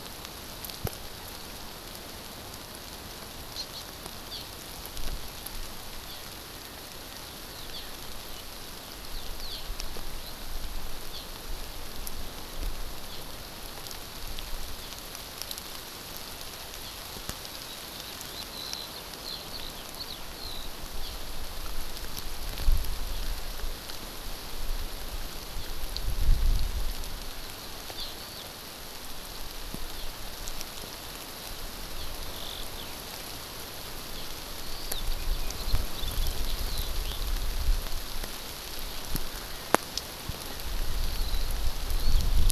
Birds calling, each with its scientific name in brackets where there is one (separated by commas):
Eurasian Skylark (Alauda arvensis), Hawaii Amakihi (Chlorodrepanis virens)